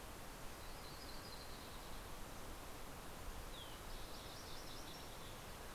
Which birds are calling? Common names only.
Green-tailed Towhee, Yellow-rumped Warbler